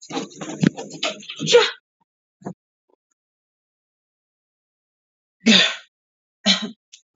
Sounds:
Sneeze